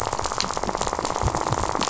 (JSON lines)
{"label": "biophony, rattle", "recorder": "SoundTrap 500"}